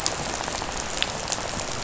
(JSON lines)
{"label": "biophony, rattle", "recorder": "SoundTrap 500"}